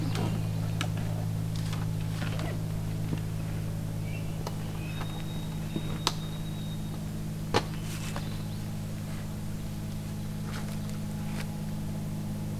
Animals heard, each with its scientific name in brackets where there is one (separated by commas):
White-throated Sparrow (Zonotrichia albicollis), Swainson's Thrush (Catharus ustulatus)